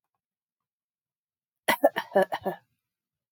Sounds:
Cough